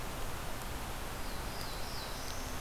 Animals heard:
Black-throated Blue Warbler (Setophaga caerulescens)

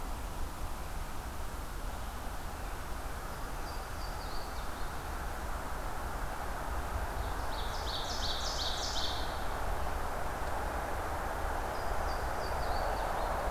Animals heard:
Ovenbird (Seiurus aurocapilla), Louisiana Waterthrush (Parkesia motacilla)

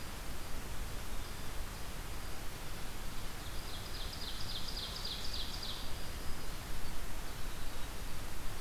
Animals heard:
Ovenbird (Seiurus aurocapilla), unknown mammal

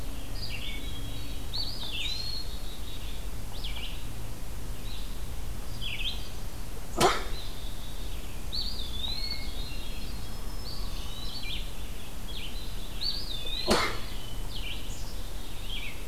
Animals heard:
Hermit Thrush (Catharus guttatus), Eastern Wood-Pewee (Contopus virens), Black-capped Chickadee (Poecile atricapillus), Red-eyed Vireo (Vireo olivaceus)

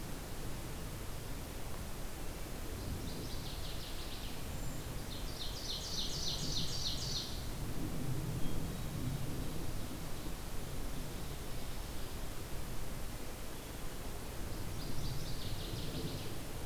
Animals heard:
Hermit Thrush (Catharus guttatus), Ovenbird (Seiurus aurocapilla), Northern Waterthrush (Parkesia noveboracensis)

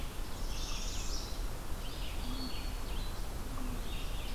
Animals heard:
unknown mammal, Broad-winged Hawk (Buteo platypterus), Northern Parula (Setophaga americana), Red-eyed Vireo (Vireo olivaceus)

